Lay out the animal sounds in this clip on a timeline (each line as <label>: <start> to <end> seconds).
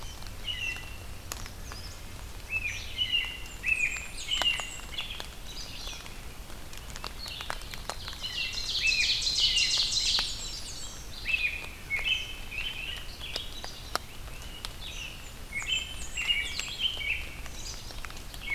American Robin (Turdus migratorius): 0.0 to 1.2 seconds
Red-eyed Vireo (Vireo olivaceus): 0.0 to 18.5 seconds
American Robin (Turdus migratorius): 2.4 to 5.5 seconds
Blackburnian Warbler (Setophaga fusca): 3.3 to 4.9 seconds
Eastern Kingbird (Tyrannus tyrannus): 5.3 to 6.0 seconds
Ovenbird (Seiurus aurocapilla): 7.9 to 10.4 seconds
American Robin (Turdus migratorius): 8.1 to 10.3 seconds
Blackburnian Warbler (Setophaga fusca): 9.7 to 11.0 seconds
American Robin (Turdus migratorius): 10.7 to 13.5 seconds
Great Crested Flycatcher (Myiarchus crinitus): 13.9 to 15.2 seconds
American Robin (Turdus migratorius): 14.9 to 17.4 seconds
Blackburnian Warbler (Setophaga fusca): 15.0 to 16.9 seconds